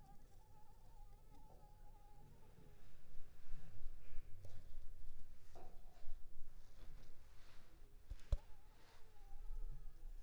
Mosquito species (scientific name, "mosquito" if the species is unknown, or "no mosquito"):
Anopheles arabiensis